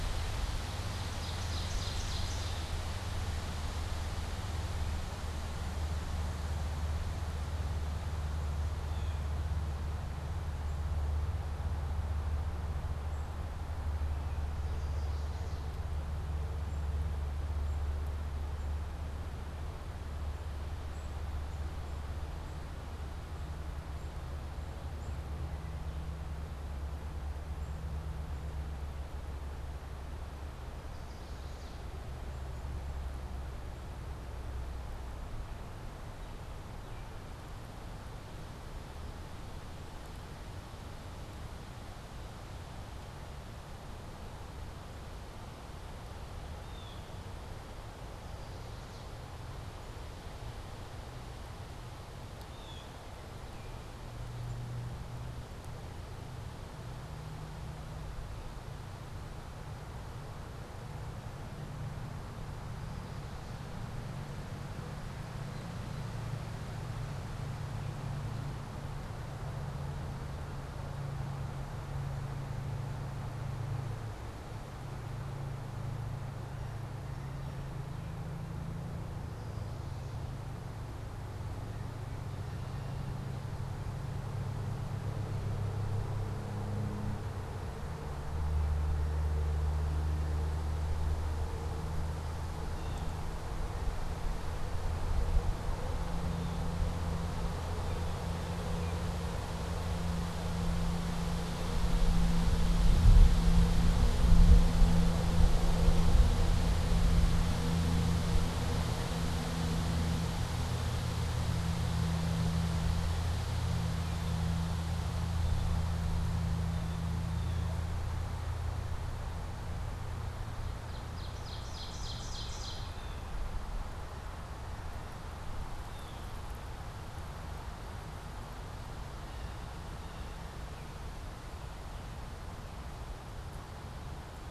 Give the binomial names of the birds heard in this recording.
Cyanocitta cristata, Setophaga pensylvanica, Seiurus aurocapilla